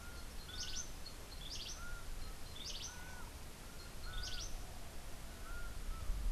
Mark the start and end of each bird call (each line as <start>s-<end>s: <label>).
0.0s-3.1s: Cabanis's Wren (Cantorchilus modestus)
0.0s-6.3s: Laughing Falcon (Herpetotheres cachinnans)
4.0s-4.6s: Cabanis's Wren (Cantorchilus modestus)